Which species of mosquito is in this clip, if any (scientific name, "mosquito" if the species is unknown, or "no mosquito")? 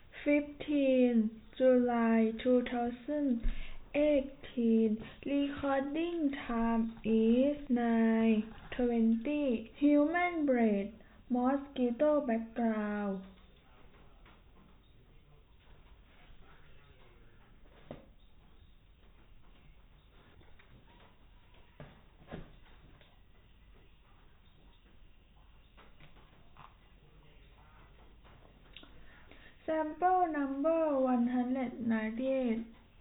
no mosquito